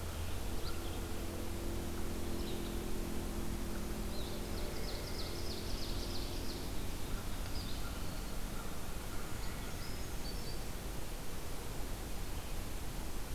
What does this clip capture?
Red-eyed Vireo, Ovenbird, Brown Creeper